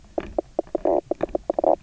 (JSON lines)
{"label": "biophony, knock croak", "recorder": "SoundTrap 300"}